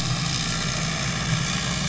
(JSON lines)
{"label": "anthrophony, boat engine", "recorder": "SoundTrap 500"}